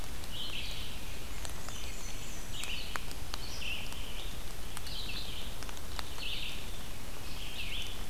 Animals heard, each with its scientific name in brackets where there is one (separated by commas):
Black-and-white Warbler (Mniotilta varia), Red-eyed Vireo (Vireo olivaceus)